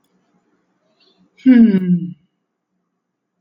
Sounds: Sigh